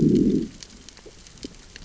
{"label": "biophony, growl", "recorder": "SoundTrap 600 or HydroMoth"}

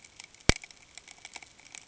{"label": "ambient", "recorder": "HydroMoth"}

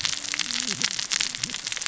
{"label": "biophony, cascading saw", "recorder": "SoundTrap 600 or HydroMoth"}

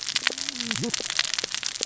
{"label": "biophony, cascading saw", "recorder": "SoundTrap 600 or HydroMoth"}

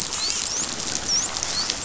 {"label": "biophony, dolphin", "recorder": "SoundTrap 500"}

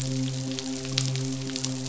{"label": "biophony, midshipman", "recorder": "SoundTrap 500"}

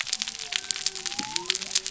{"label": "biophony", "recorder": "SoundTrap 300"}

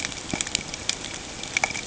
{"label": "ambient", "recorder": "HydroMoth"}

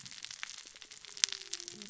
{"label": "biophony, cascading saw", "recorder": "SoundTrap 600 or HydroMoth"}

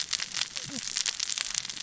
{"label": "biophony, cascading saw", "recorder": "SoundTrap 600 or HydroMoth"}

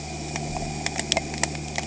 {"label": "anthrophony, boat engine", "recorder": "HydroMoth"}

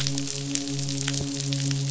{"label": "biophony, midshipman", "recorder": "SoundTrap 500"}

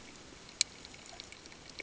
{"label": "ambient", "recorder": "HydroMoth"}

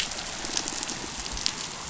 {"label": "biophony", "recorder": "SoundTrap 500"}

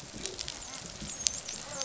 {"label": "biophony, dolphin", "recorder": "SoundTrap 500"}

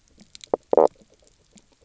{"label": "biophony, knock croak", "recorder": "SoundTrap 300"}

